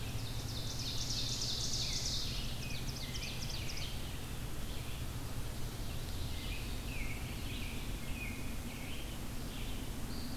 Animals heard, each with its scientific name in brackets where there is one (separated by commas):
Red-eyed Vireo (Vireo olivaceus), American Robin (Turdus migratorius), Ovenbird (Seiurus aurocapilla)